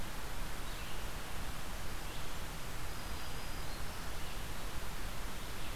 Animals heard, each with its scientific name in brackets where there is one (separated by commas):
Red-eyed Vireo (Vireo olivaceus), Black-throated Green Warbler (Setophaga virens)